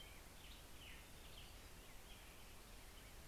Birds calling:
American Robin (Turdus migratorius)

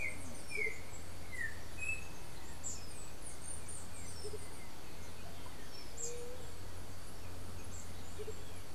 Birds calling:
Andean Motmot (Momotus aequatorialis), White-tipped Dove (Leptotila verreauxi), Chestnut-capped Brushfinch (Arremon brunneinucha), Yellow-backed Oriole (Icterus chrysater)

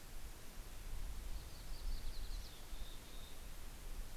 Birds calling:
Mountain Chickadee (Poecile gambeli), Yellow-rumped Warbler (Setophaga coronata)

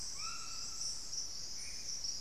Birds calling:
White-throated Toucan (Ramphastos tucanus), Black-faced Antthrush (Formicarius analis)

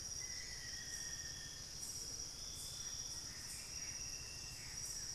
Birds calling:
White-bellied Tody-Tyrant (Hemitriccus griseipectus), Bluish-fronted Jacamar (Galbula cyanescens), Gray Antbird (Cercomacra cinerascens), Black-faced Antthrush (Formicarius analis), Plain-winged Antshrike (Thamnophilus schistaceus)

